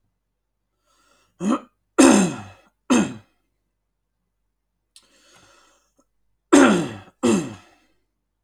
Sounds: Throat clearing